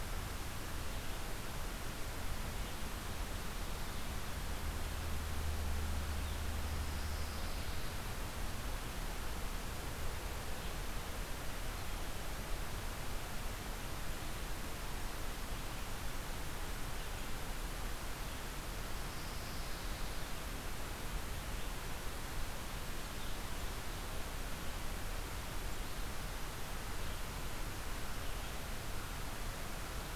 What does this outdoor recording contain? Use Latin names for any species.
Setophaga pinus